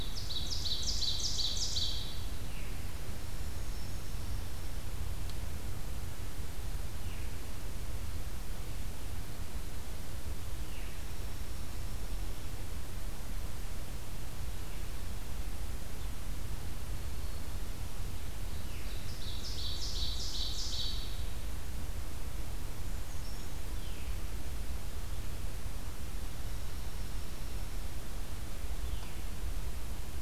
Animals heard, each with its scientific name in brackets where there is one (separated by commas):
Brown Creeper (Certhia americana), Dark-eyed Junco (Junco hyemalis), Veery (Catharus fuscescens), Ovenbird (Seiurus aurocapilla)